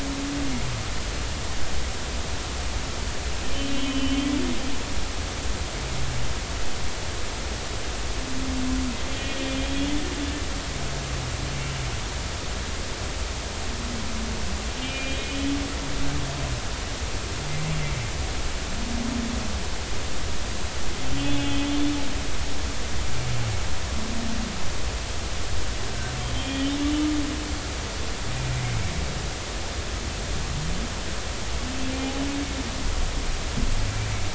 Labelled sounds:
3.5	4.3	humpback whale, 2.9 to 3.2 kHz
9.1	9.9	humpback whale, 3.1 to 3.5 kHz
14.8	15.5	humpback whale, 2.3 to 2.5 kHz
21.1	21.6	humpback whale, 2.7 to 3.5 kHz
22.7	22.9	humpback whale, 3.4 to 3.5 kHz
26.3	26.7	humpback whale, 3.1 to 3.3 kHz

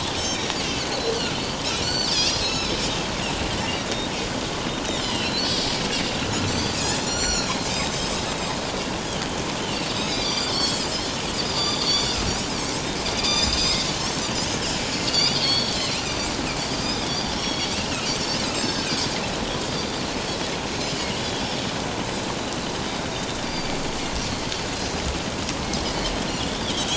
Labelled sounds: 0.2	1.2	Pacific white-sided dolphin, 3.8 to 5.8 kHz
1.8	2.8	Pacific white-sided dolphin, 2.3 to 8.0 kHz
4.9	5.4	Pacific white-sided dolphin, 2.4 to 5.7 kHz
6.4	8.3	Pacific white-sided dolphin, 2.6 to 7.3 kHz
9.6	10.8	Pacific white-sided dolphin, 2.2 to 6.1 kHz
11.4	12.2	Pacific white-sided dolphin, 3.3 to 7.3 kHz
13.1	13.8	Pacific white-sided dolphin, 2.3 to 7.6 kHz
14.9	16.0	Pacific white-sided dolphin, 2.8 to 5.7 kHz
16.8	18.1	Pacific white-sided dolphin, 2.4 to 7.9 kHz
18.5	19.0	Pacific white-sided dolphin, 1.5 to 6.4 kHz
20.9	21.2	Pacific white-sided dolphin, 2.7 to 3.1 kHz
23.4	23.7	Pacific white-sided dolphin, 4.6 to 4.9 kHz
26.4	26.7	Pacific white-sided dolphin, 3.0 to 3.7 kHz

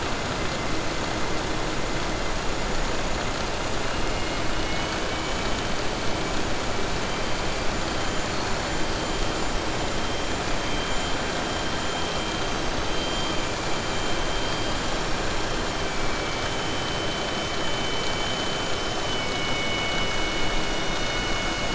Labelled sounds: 4.5	5.6	killer whale, southern resident, 2.2 to 3.9 kHz

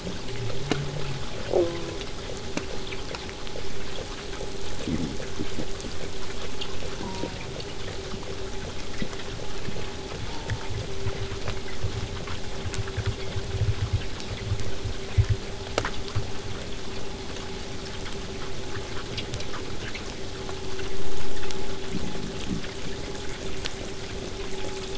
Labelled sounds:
1.5	2.1	killer whale, southern resident, J pod, call S04, 0.15 to 1.3 kHz
3.9	7.0	killer whale, southern resident, 4.9 to 8.0 kHz
7.0	7.6	killer whale, southern resident, J pod, call S04, 0.15 to 1.2 kHz
10.2	10.8	killer whale, southern resident, J pod, call S04, 0.18 to 1.0 kHz

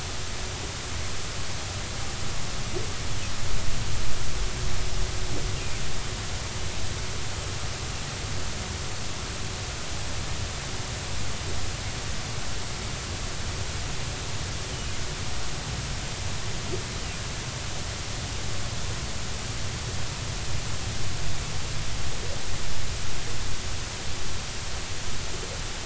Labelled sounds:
14.7	14.9	humpback whale, 2.8 to 3.1 kHz

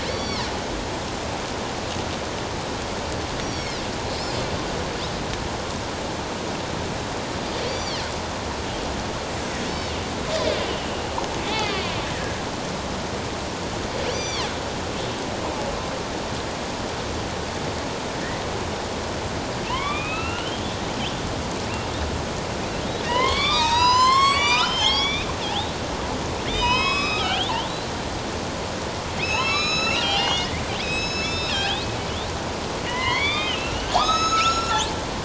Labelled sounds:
0.1	0.5	killer whale, northern resident, A clan, AB subclan, 3.2 to 5.8 kHz
3.4	3.8	killer whale, northern resident, A clan, AB subclan, 3.8 to 5.8 kHz
7.6	8.1	killer whale, northern resident, A clan, AB subclan, 2.8 to 7.1 kHz
9.7	9.9	killer whale, northern resident, A clan, AB subclan, 3.7 to 4.7 kHz
10.7	11.9	killer whale, northern resident, A clan, AB subclan, 1.1 to 4.9 kHz
12.1	12.5	killer whale, northern resident, A clan, AB subclan, 1.6 to 2.0 kHz
14.1	14.5	killer whale, northern resident, A clan, AB subclan, 2.1 to 7.2 kHz
19.7	20.6	killer whale, northern resident, A clan, AB subclan, 0.88 to 4.0 kHz
23.0	25.3	killer whale, northern resident, A clan, AB subclan, 0.81 to 8.0 kHz
26.5	27.5	killer whale, northern resident, A clan, AB subclan, 0.91 to 5.2 kHz
29.2	31.9	killer whale, northern resident, A clan, AB subclan, 0.78 to 7.9 kHz
32.9	35.0	killer whale, northern resident, A clan, AB subclan, 0.78 to 7.9 kHz

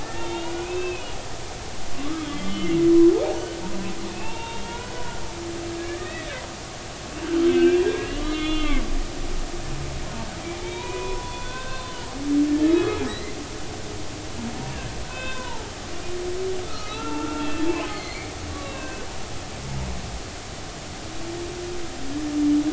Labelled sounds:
0.0	1.5	humpback whale, 1.4 to 3.8 kHz
1.9	2.8	humpback whale, 1.0 to 3.4 kHz
4.1	6.4	humpback whale, 0.83 to 3.9 kHz
7.2	8.8	humpback whale, 1.1 to 4.1 kHz
10.6	12.0	humpback whale, 0.90 to 4.2 kHz
12.7	13.3	humpback whale, 1.8 to 2.7 kHz
15.0	15.7	humpback whale, 0.83 to 3.7 kHz
16.7	19.1	humpback whale, 1.1 to 4.4 kHz

